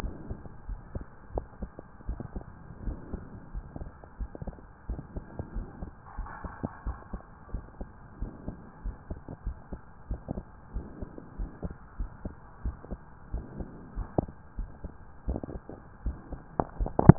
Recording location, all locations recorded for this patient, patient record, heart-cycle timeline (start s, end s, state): pulmonary valve (PV)
aortic valve (AV)+pulmonary valve (PV)+tricuspid valve (TV)+mitral valve (MV)
#Age: Adolescent
#Sex: Male
#Height: 166.0 cm
#Weight: 71.3 kg
#Pregnancy status: False
#Murmur: Absent
#Murmur locations: nan
#Most audible location: nan
#Systolic murmur timing: nan
#Systolic murmur shape: nan
#Systolic murmur grading: nan
#Systolic murmur pitch: nan
#Systolic murmur quality: nan
#Diastolic murmur timing: nan
#Diastolic murmur shape: nan
#Diastolic murmur grading: nan
#Diastolic murmur pitch: nan
#Diastolic murmur quality: nan
#Outcome: Normal
#Campaign: 2015 screening campaign
0.00	0.14	S1
0.14	0.26	systole
0.26	0.38	S2
0.38	0.68	diastole
0.68	0.82	S1
0.82	0.94	systole
0.94	1.06	S2
1.06	1.34	diastole
1.34	1.46	S1
1.46	1.62	systole
1.62	1.72	S2
1.72	2.08	diastole
2.08	2.18	S1
2.18	2.34	systole
2.34	2.46	S2
2.46	2.82	diastole
2.82	2.98	S1
2.98	3.12	systole
3.12	3.26	S2
3.26	3.54	diastole
3.54	3.66	S1
3.66	3.80	systole
3.80	3.90	S2
3.90	4.20	diastole
4.20	4.30	S1
4.30	4.46	systole
4.46	4.54	S2
4.54	4.90	diastole
4.90	5.04	S1
5.04	5.16	systole
5.16	5.26	S2
5.26	5.54	diastole
5.54	5.68	S1
5.68	5.80	systole
5.80	5.88	S2
5.88	6.18	diastole
6.18	6.30	S1
6.30	6.44	systole
6.44	6.54	S2
6.54	6.86	diastole
6.86	7.00	S1
7.00	7.11	systole
7.11	7.20	S2
7.20	7.52	diastole
7.52	7.64	S1
7.64	7.78	systole
7.78	7.88	S2
7.88	8.20	diastole
8.20	8.34	S1
8.34	8.48	systole
8.48	8.58	S2
8.58	8.84	diastole
8.84	8.96	S1
8.96	9.10	systole
9.10	9.18	S2
9.18	9.46	diastole
9.46	9.58	S1
9.58	9.72	systole
9.72	9.80	S2
9.80	10.08	diastole
10.08	10.22	S1
10.22	10.30	systole
10.30	10.44	S2
10.44	10.74	diastole
10.74	10.86	S1
10.86	10.98	systole
10.98	11.08	S2
11.08	11.38	diastole
11.38	11.50	S1
11.50	11.62	systole
11.62	11.72	S2
11.72	11.98	diastole
11.98	12.12	S1
12.12	12.26	systole
12.26	12.34	S2
12.34	12.64	diastole
12.64	12.76	S1
12.76	12.90	systole
12.90	13.00	S2
13.00	13.32	diastole
13.32	13.46	S1
13.46	13.58	systole
13.58	13.68	S2
13.68	13.96	diastole
13.96	14.08	S1
14.08	14.16	systole
14.16	14.30	S2
14.30	14.58	diastole
14.58	14.70	S1
14.70	14.84	systole
14.84	14.92	S2
14.92	15.26	diastole
15.26	15.42	S1
15.42	15.56	systole
15.56	15.68	S2
15.68	16.04	diastole
16.04	16.18	S1
16.18	16.32	systole
16.32	16.42	S2
16.42	16.78	diastole
16.78	16.94	S1